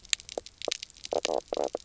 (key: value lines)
label: biophony, knock croak
recorder: SoundTrap 300